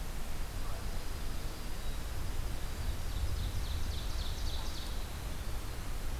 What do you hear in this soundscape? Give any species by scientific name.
Junco hyemalis, Seiurus aurocapilla